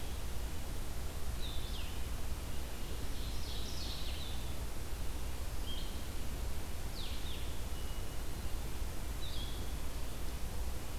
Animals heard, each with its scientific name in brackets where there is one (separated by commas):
Ovenbird (Seiurus aurocapilla), Blue-headed Vireo (Vireo solitarius), Wood Thrush (Hylocichla mustelina)